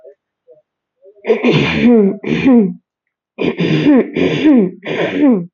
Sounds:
Throat clearing